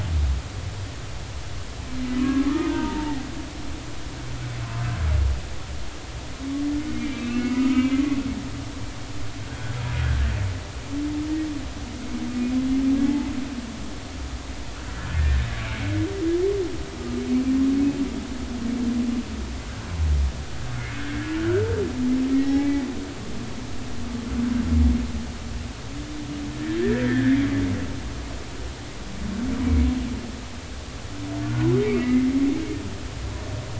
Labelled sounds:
2.2	3.2	humpback whale, 0.80 to 1.7 kHz
7.0	8.0	humpback whale, 1.5 to 3.1 kHz
9.9	10.2	humpback whale, 1.4 to 1.7 kHz
15.1	15.9	humpback whale, 1.7 to 2.5 kHz
17.0	17.2	humpback whale, 1.2 to 1.3 kHz
20.8	21.0	humpback whale, 2.0 to 2.3 kHz
22.3	22.8	humpback whale, 0.80 to 2.3 kHz
26.6	27.4	humpback whale, 1.5 to 2.0 kHz
31.4	32.3	humpback whale, 1.3 to 2.8 kHz

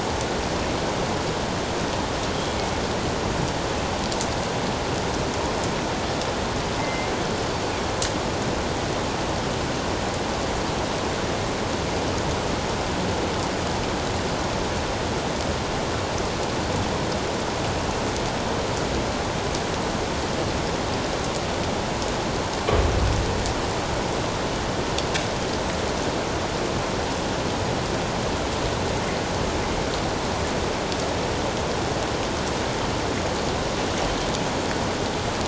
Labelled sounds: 6.8	7.1	killer whale, northern resident, 2.0 to 2.2 kHz

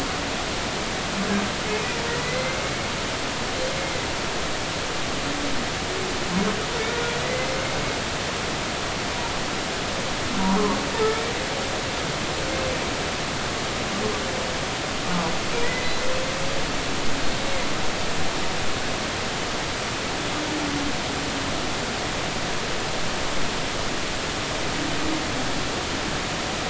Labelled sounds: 2.2	2.6	humpback whale, 2.0 to 2.2 kHz
3.8	4.1	humpback whale, 2.0 to 2.2 kHz
7.2	7.5	humpback whale, 1.9 to 2.1 kHz
15.6	16.0	humpback whale, 1.8 to 2.1 kHz

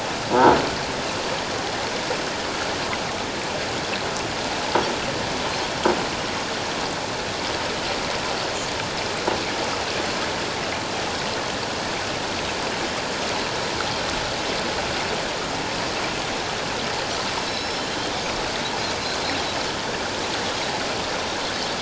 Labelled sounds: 0.3	0.6	croaking sound likely from a nearby submerged object, 0.81 to 1.0 kHz
17.4	17.8	Pacific white-sided dolphin, 3.8 to 5.4 kHz

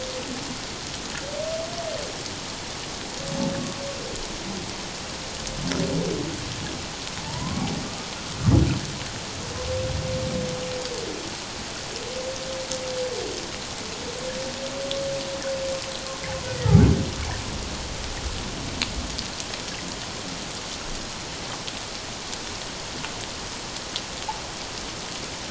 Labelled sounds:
7.3	7.7	humpback whale, 0.84 to 1.2 kHz

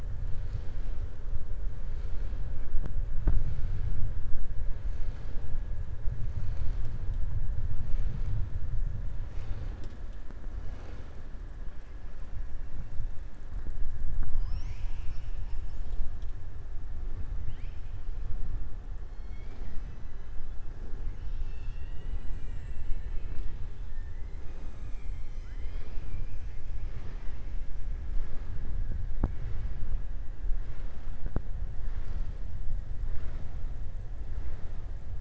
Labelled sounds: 17.4	17.8	killer whale, southern resident, 1.6 to 5.3 kHz
22.1	22.9	killer whale, southern resident, 6.6 to 7.9 kHz

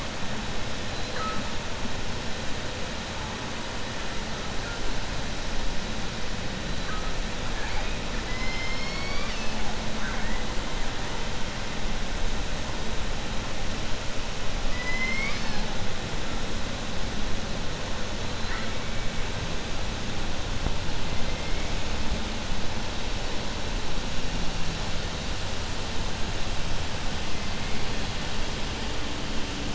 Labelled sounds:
8.2	10.4	killer whale, southern resident, 0.74 to 7.3 kHz
14.7	15.7	killer whale, southern resident, 0.89 to 5.9 kHz

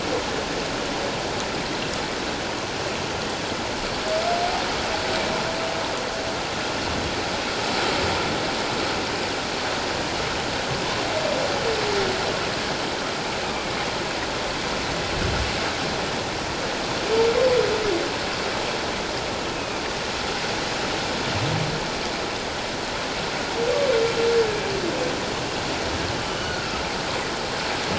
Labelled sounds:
19.5	19.8	humpback whale, 2.3 to 2.7 kHz
26.3	26.8	humpback whale, 1.2 to 3.0 kHz

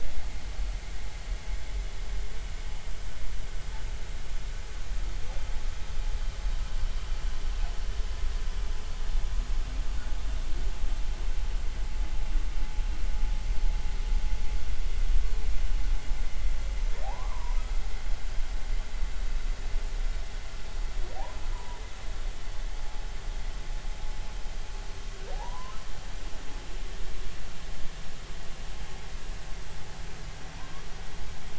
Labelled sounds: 18.0	18.6	humpback whale, 0.80 to 1.2 kHz
21.5	21.8	humpback whale, 0.90 to 1.1 kHz
25.3	25.8	humpback whale, 0.80 to 1.1 kHz

